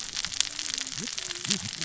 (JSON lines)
{"label": "biophony, cascading saw", "recorder": "SoundTrap 600 or HydroMoth"}